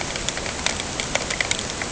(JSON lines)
{"label": "ambient", "recorder": "HydroMoth"}